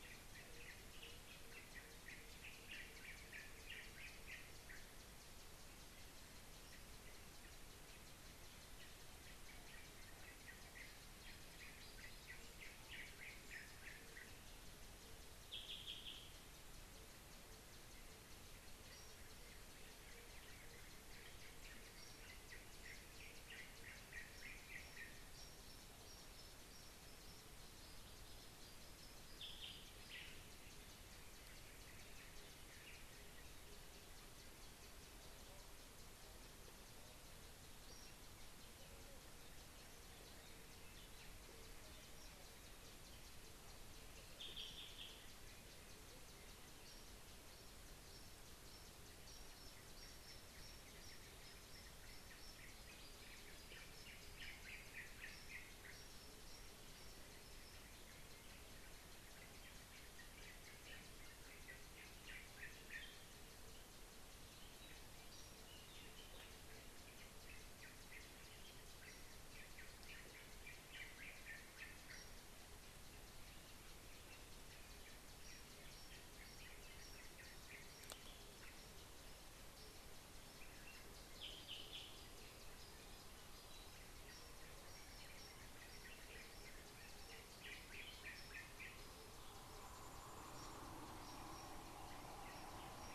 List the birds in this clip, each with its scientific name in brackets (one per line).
Yellow-whiskered Greenbul (Eurillas latirostris)
Shelley's Starling (Lamprotornis shelleyi)